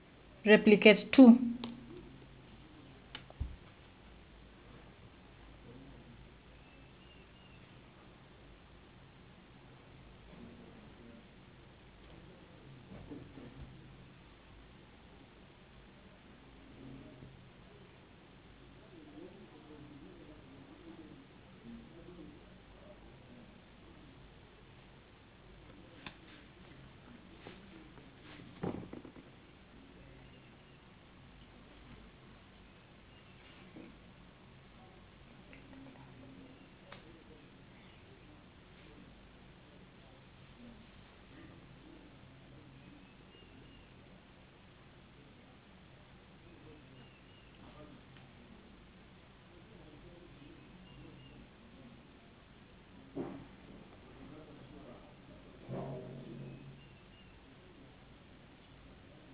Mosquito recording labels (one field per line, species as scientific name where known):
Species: no mosquito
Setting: insect culture